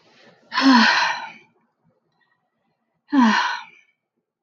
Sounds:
Sigh